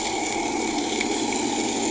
{"label": "anthrophony, boat engine", "recorder": "HydroMoth"}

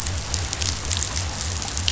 {"label": "biophony", "recorder": "SoundTrap 500"}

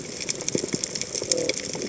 {"label": "biophony", "recorder": "HydroMoth"}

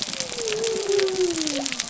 {"label": "biophony", "recorder": "SoundTrap 300"}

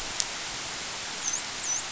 {"label": "biophony, dolphin", "recorder": "SoundTrap 500"}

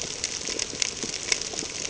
{"label": "ambient", "recorder": "HydroMoth"}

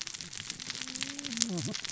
{"label": "biophony, cascading saw", "recorder": "SoundTrap 600 or HydroMoth"}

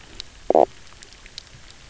{"label": "biophony, knock croak", "recorder": "SoundTrap 300"}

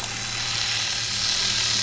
{"label": "anthrophony, boat engine", "recorder": "SoundTrap 500"}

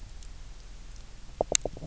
{"label": "biophony, knock croak", "recorder": "SoundTrap 300"}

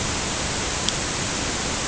{"label": "ambient", "recorder": "HydroMoth"}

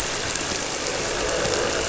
{"label": "anthrophony, boat engine", "recorder": "SoundTrap 300"}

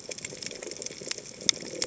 {"label": "biophony", "recorder": "HydroMoth"}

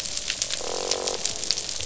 {"label": "biophony, croak", "recorder": "SoundTrap 500"}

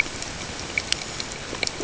{"label": "ambient", "recorder": "HydroMoth"}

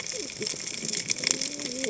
{"label": "biophony, cascading saw", "recorder": "HydroMoth"}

